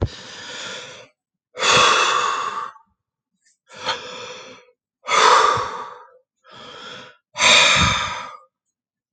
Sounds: Sigh